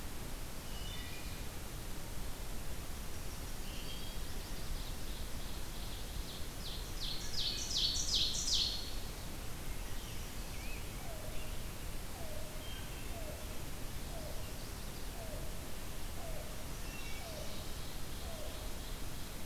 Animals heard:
Scarlet Tanager (Piranga olivacea)
Wood Thrush (Hylocichla mustelina)
Chestnut-sided Warbler (Setophaga pensylvanica)
Yellow-billed Cuckoo (Coccyzus americanus)
Ovenbird (Seiurus aurocapilla)

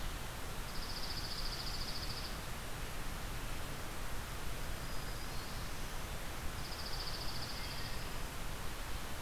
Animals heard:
Dark-eyed Junco (Junco hyemalis)
Black-throated Green Warbler (Setophaga virens)
Wood Thrush (Hylocichla mustelina)

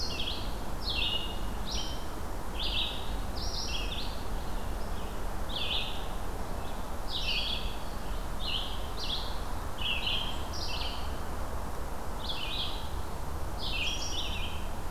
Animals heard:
Red-eyed Vireo (Vireo olivaceus)

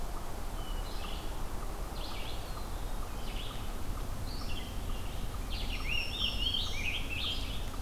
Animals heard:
Black-throated Green Warbler (Setophaga virens)
Scarlet Tanager (Piranga olivacea)
Red-eyed Vireo (Vireo olivaceus)
Blackburnian Warbler (Setophaga fusca)

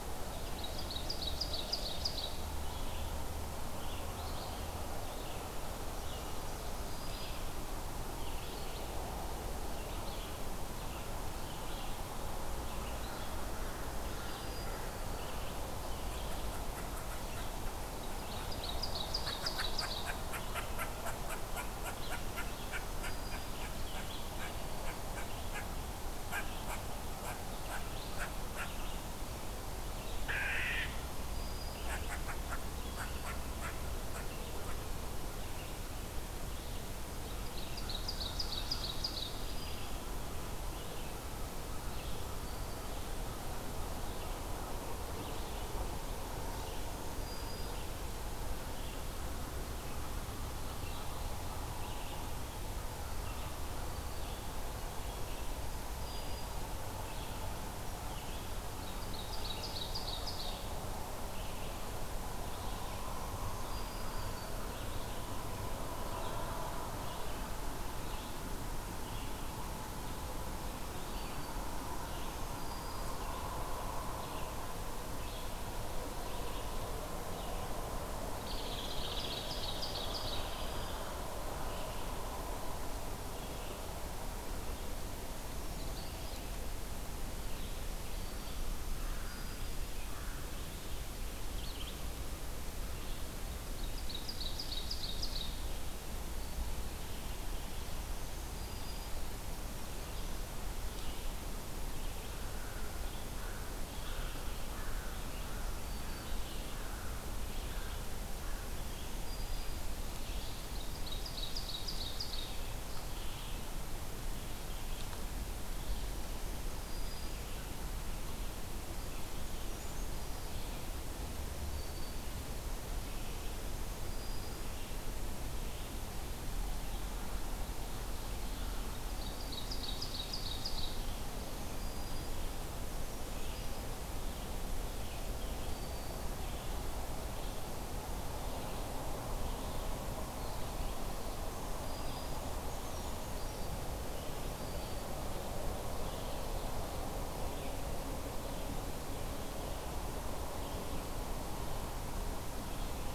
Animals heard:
Black-throated Green Warbler (Setophaga virens)
Brown Creeper (Certhia americana)
unknown mammal
Red-eyed Vireo (Vireo olivaceus)
Hairy Woodpecker (Dryobates villosus)
Ovenbird (Seiurus aurocapilla)
American Crow (Corvus brachyrhynchos)

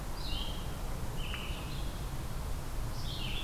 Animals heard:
Red-eyed Vireo (Vireo olivaceus)

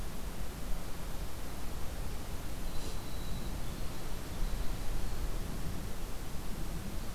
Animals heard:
Winter Wren (Troglodytes hiemalis)

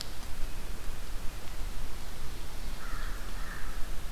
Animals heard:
American Crow (Corvus brachyrhynchos)

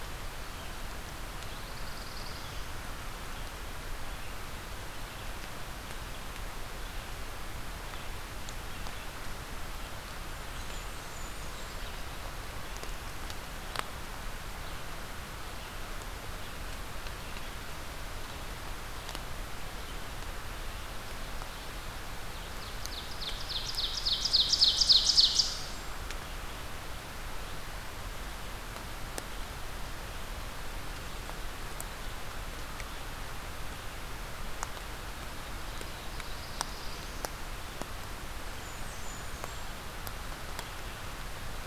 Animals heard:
Black-throated Blue Warbler (Setophaga caerulescens)
Ovenbird (Seiurus aurocapilla)
Blackburnian Warbler (Setophaga fusca)

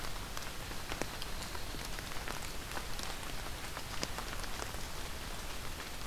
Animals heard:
Yellow-rumped Warbler (Setophaga coronata)

